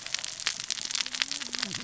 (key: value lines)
label: biophony, cascading saw
recorder: SoundTrap 600 or HydroMoth